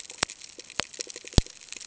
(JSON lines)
{"label": "ambient", "recorder": "HydroMoth"}